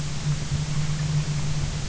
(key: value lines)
label: anthrophony, boat engine
recorder: SoundTrap 300